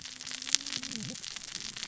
{"label": "biophony, cascading saw", "recorder": "SoundTrap 600 or HydroMoth"}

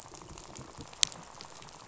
{"label": "biophony, rattle", "recorder": "SoundTrap 500"}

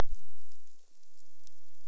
{"label": "biophony", "recorder": "SoundTrap 300"}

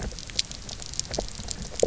{"label": "biophony, low growl", "recorder": "SoundTrap 300"}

